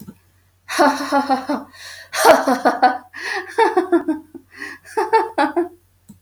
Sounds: Laughter